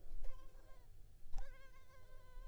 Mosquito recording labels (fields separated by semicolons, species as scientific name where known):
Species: Culex pipiens complex; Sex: female; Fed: unfed; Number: one; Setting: cup